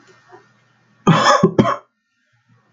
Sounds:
Cough